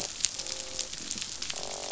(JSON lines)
{"label": "biophony, croak", "recorder": "SoundTrap 500"}